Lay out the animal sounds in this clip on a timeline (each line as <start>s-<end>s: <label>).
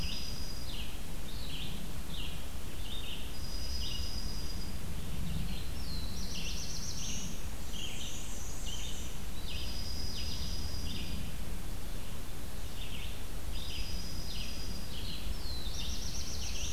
0.0s-0.8s: Dark-eyed Junco (Junco hyemalis)
0.0s-16.7s: Red-eyed Vireo (Vireo olivaceus)
3.2s-4.8s: Dark-eyed Junco (Junco hyemalis)
5.5s-7.3s: Black-throated Blue Warbler (Setophaga caerulescens)
7.6s-9.3s: Black-and-white Warbler (Mniotilta varia)
9.4s-11.3s: Dark-eyed Junco (Junco hyemalis)
13.4s-15.0s: Dark-eyed Junco (Junco hyemalis)
15.1s-16.7s: Black-throated Blue Warbler (Setophaga caerulescens)